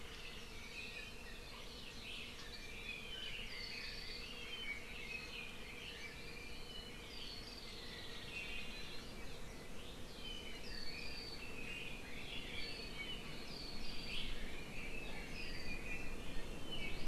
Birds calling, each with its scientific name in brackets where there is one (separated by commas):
Hawaii Creeper (Loxops mana), Iiwi (Drepanis coccinea), Red-billed Leiothrix (Leiothrix lutea)